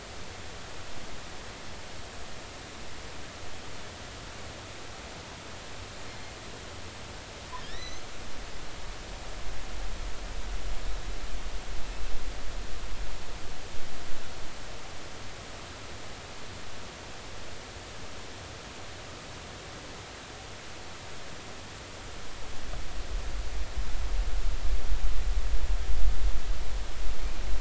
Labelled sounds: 6.1	6.3	killer whale, offshore, 4.2 to 4.3 kHz
7.6	8.1	killer whale, offshore, 1.6 to 6.3 kHz

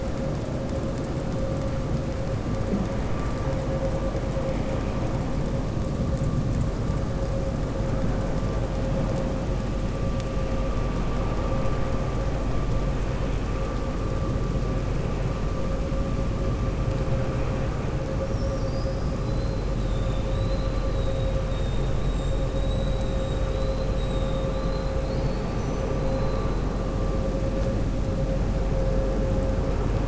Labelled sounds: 19.8	21.9	killer whale, southern resident, 2.9 to 4.4 kHz
22.6	23.4	killer whale, southern resident, 6.6 to 8.0 kHz
25.0	25.9	killer whale, southern resident, 4.1 to 6.1 kHz

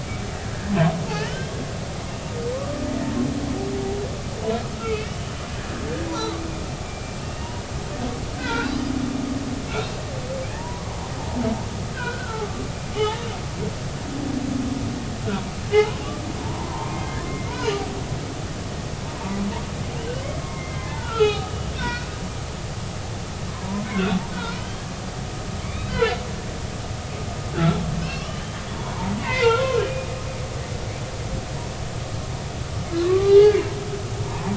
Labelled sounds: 1.1	1.6	humpback whale, 1.6 to 3.3 kHz
2.5	2.8	humpback whale, 0.99 to 1.2 kHz
4.7	5.1	humpback whale, 1.2 to 2.8 kHz
6.1	7.6	humpback whale, 0.83 to 2.9 kHz
8.3	8.7	humpback whale, 0.86 to 2.6 kHz
9.7	9.9	humpback whale, 2.2 to 2.8 kHz
11.5	12.5	humpback whale, 0.83 to 1.7 kHz
13.0	13.3	humpback whale, 0.80 to 1.9 kHz
15.7	16.0	humpback whale, 0.80 to 1.1 kHz
16.4	17.7	humpback whale, 0.83 to 2.2 kHz
18.5	18.8	humpback whale, 2.8 to 3.1 kHz
20.4	22.1	humpback whale, 0.80 to 3.0 kHz
23.9	24.8	humpback whale, 1.3 to 3.7 kHz
25.6	26.2	humpback whale, 1.3 to 4.2 kHz
27.5	29.7	humpback whale, 0.86 to 3.5 kHz
33.0	33.6	humpback whale, 0.80 to 3.0 kHz
34.2	34.5	humpback whale, 0.83 to 1.1 kHz

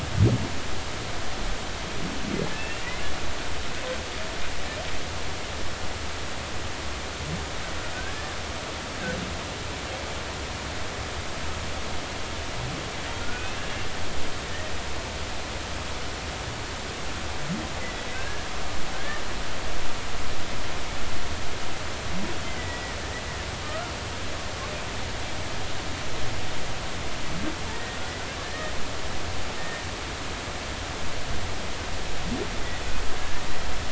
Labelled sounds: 2.5	2.9	humpback whale, 1.7 to 2.8 kHz
7.9	8.3	humpback whale, 1.4 to 1.8 kHz
13.2	13.7	humpback whale, 1.3 to 2.8 kHz
17.8	18.5	humpback whale, 1.5 to 2.1 kHz
22.5	23.0	humpback whale, 1.8 to 2.1 kHz
23.6	23.9	humpback whale, 1.2 to 1.5 kHz
27.7	28.7	humpback whale, 1.6 to 1.9 kHz
29.6	29.8	humpback whale, 1.8 to 1.9 kHz
33.2	33.5	humpback whale, 1.6 to 1.9 kHz

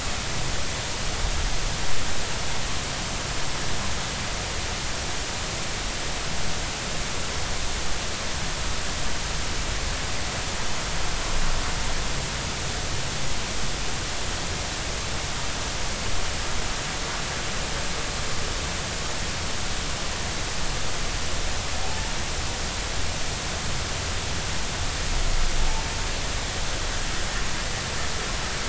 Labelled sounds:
21.8	22.1	humpback whale, 0.80 to 0.96 kHz

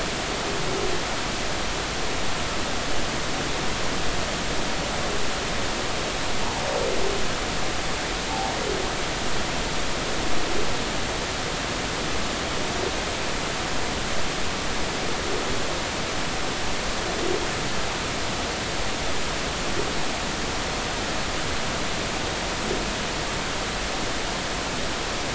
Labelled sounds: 8.3	8.6	humpback whale, 0.80 to 0.96 kHz

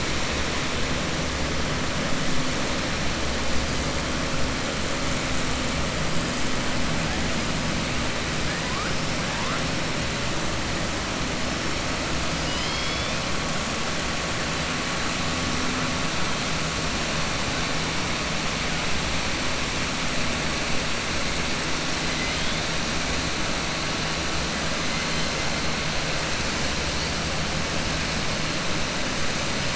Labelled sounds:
12.3	13.1	killer whale, 2.2 to 5.5 kHz
22.1	22.6	killer whale, 2.0 to 3.9 kHz

